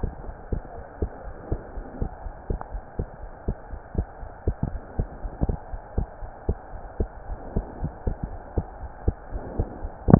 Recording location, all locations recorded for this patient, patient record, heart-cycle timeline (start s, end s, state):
pulmonary valve (PV)
aortic valve (AV)+pulmonary valve (PV)+tricuspid valve (TV)+mitral valve (MV)
#Age: Child
#Sex: Female
#Height: 115.0 cm
#Weight: 23.1 kg
#Pregnancy status: False
#Murmur: Absent
#Murmur locations: nan
#Most audible location: nan
#Systolic murmur timing: nan
#Systolic murmur shape: nan
#Systolic murmur grading: nan
#Systolic murmur pitch: nan
#Systolic murmur quality: nan
#Diastolic murmur timing: nan
#Diastolic murmur shape: nan
#Diastolic murmur grading: nan
#Diastolic murmur pitch: nan
#Diastolic murmur quality: nan
#Outcome: Normal
#Campaign: 2015 screening campaign
0.00	0.98	unannotated
0.98	1.12	S2
1.12	1.23	diastole
1.23	1.34	S1
1.34	1.48	systole
1.48	1.62	S2
1.62	1.74	diastole
1.74	1.84	S1
1.84	1.98	systole
1.98	2.12	S2
2.12	2.22	diastole
2.22	2.32	S1
2.32	2.48	systole
2.48	2.62	S2
2.62	2.72	diastole
2.72	2.82	S1
2.82	2.98	systole
2.98	3.10	S2
3.10	3.24	diastole
3.24	3.30	S1
3.30	3.46	systole
3.46	3.56	S2
3.56	3.70	diastole
3.70	3.80	S1
3.80	3.96	systole
3.96	4.08	S2
4.08	4.22	diastole
4.22	4.30	S1
4.30	4.44	systole
4.44	4.58	S2
4.58	4.72	diastole
4.72	4.82	S1
4.82	4.96	systole
4.96	5.10	S2
5.10	5.22	diastole
5.22	5.32	S1
5.32	5.44	systole
5.44	5.58	S2
5.58	5.72	diastole
5.72	5.82	S1
5.82	5.96	systole
5.96	6.10	S2
6.10	6.22	diastole
6.22	6.30	S1
6.30	6.46	systole
6.46	6.58	S2
6.58	6.70	diastole
6.70	6.82	S1
6.82	6.98	systole
6.98	7.10	S2
7.10	7.26	diastole
7.26	7.40	S1
7.40	7.54	systole
7.54	7.66	S2
7.66	7.80	diastole
7.80	7.92	S1
7.92	8.05	systole
8.05	8.20	S2
8.20	8.31	diastole
8.31	8.40	S1
8.40	8.56	systole
8.56	8.70	S2
8.70	8.80	diastole
8.80	8.90	S1
8.90	9.02	systole
9.02	9.18	S2
9.18	9.30	diastole
9.30	9.42	S1
9.42	9.54	systole
9.54	9.68	S2
9.68	9.80	diastole
9.80	9.92	S1
9.92	10.19	unannotated